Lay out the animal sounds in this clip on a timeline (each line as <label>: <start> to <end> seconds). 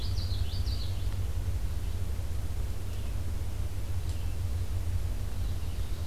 Common Yellowthroat (Geothlypis trichas): 0.0 to 1.0 seconds
Red-eyed Vireo (Vireo olivaceus): 0.0 to 6.1 seconds